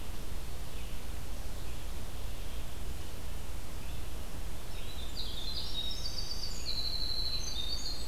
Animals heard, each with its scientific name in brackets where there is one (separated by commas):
Winter Wren (Troglodytes hiemalis)